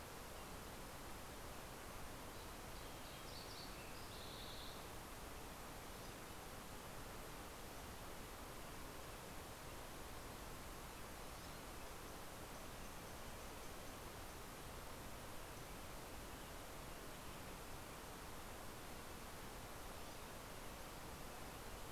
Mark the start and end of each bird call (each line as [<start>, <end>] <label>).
[0.76, 5.56] Green-tailed Towhee (Pipilo chlorurus)